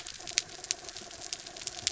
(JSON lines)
{"label": "anthrophony, mechanical", "recorder": "SoundTrap 300"}